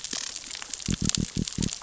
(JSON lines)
{"label": "biophony", "recorder": "SoundTrap 600 or HydroMoth"}